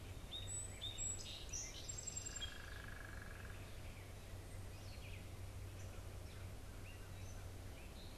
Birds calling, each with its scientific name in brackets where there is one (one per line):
unidentified bird
Song Sparrow (Melospiza melodia)
Gray Catbird (Dumetella carolinensis)